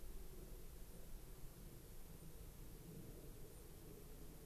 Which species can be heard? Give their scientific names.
Junco hyemalis